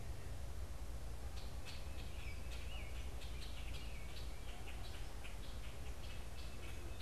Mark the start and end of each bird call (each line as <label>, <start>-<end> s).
American Robin (Turdus migratorius), 0.0-7.0 s
Common Grackle (Quiscalus quiscula), 0.0-7.0 s